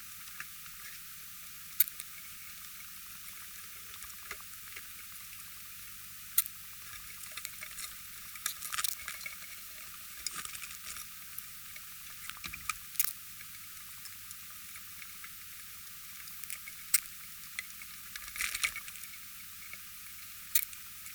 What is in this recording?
Poecilimon jonicus, an orthopteran